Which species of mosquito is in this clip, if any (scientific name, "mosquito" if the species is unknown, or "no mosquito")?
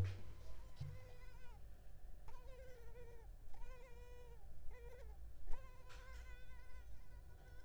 Culex pipiens complex